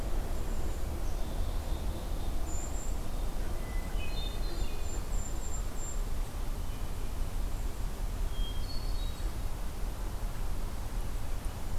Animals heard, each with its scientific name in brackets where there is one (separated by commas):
Golden-crowned Kinglet (Regulus satrapa), Hermit Thrush (Catharus guttatus), Black-capped Chickadee (Poecile atricapillus)